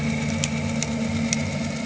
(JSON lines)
{"label": "anthrophony, boat engine", "recorder": "HydroMoth"}